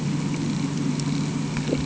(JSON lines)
{"label": "anthrophony, boat engine", "recorder": "HydroMoth"}